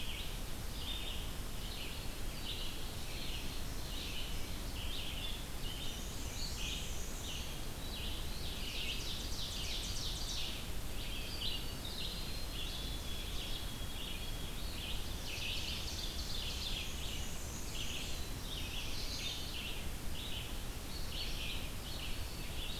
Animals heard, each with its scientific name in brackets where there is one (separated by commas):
White-throated Sparrow (Zonotrichia albicollis), Black-throated Blue Warbler (Setophaga caerulescens), Ovenbird (Seiurus aurocapilla), Red-eyed Vireo (Vireo olivaceus), Black-and-white Warbler (Mniotilta varia)